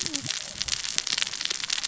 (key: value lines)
label: biophony, cascading saw
recorder: SoundTrap 600 or HydroMoth